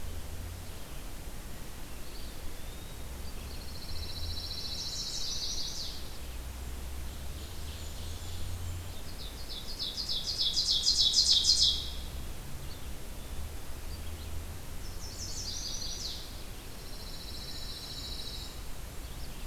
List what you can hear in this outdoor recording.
Red-eyed Vireo, Eastern Wood-Pewee, Pine Warbler, Chestnut-sided Warbler, Blackburnian Warbler, Ovenbird